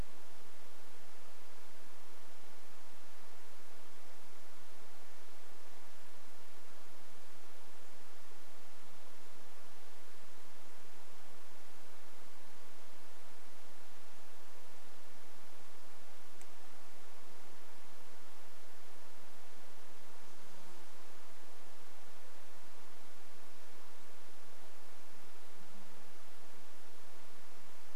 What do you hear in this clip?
insect buzz